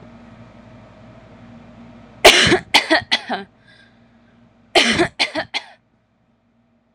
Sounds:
Cough